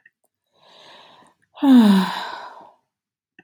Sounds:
Sigh